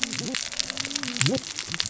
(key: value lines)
label: biophony, cascading saw
recorder: SoundTrap 600 or HydroMoth